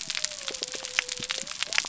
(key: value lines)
label: biophony
recorder: SoundTrap 300